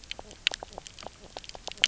{"label": "biophony, knock croak", "recorder": "SoundTrap 300"}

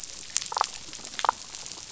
{"label": "biophony, damselfish", "recorder": "SoundTrap 500"}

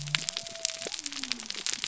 {"label": "biophony", "recorder": "SoundTrap 300"}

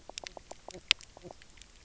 {"label": "biophony, knock croak", "recorder": "SoundTrap 300"}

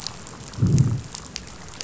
{"label": "biophony, growl", "recorder": "SoundTrap 500"}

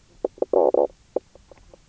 {"label": "biophony, knock croak", "recorder": "SoundTrap 300"}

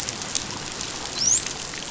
{"label": "biophony, dolphin", "recorder": "SoundTrap 500"}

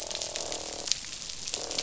{"label": "biophony, croak", "recorder": "SoundTrap 500"}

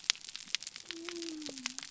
{"label": "biophony", "recorder": "SoundTrap 300"}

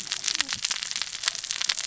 {"label": "biophony, cascading saw", "recorder": "SoundTrap 600 or HydroMoth"}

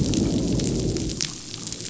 {"label": "biophony, growl", "recorder": "SoundTrap 500"}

